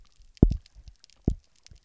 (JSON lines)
{"label": "biophony, double pulse", "recorder": "SoundTrap 300"}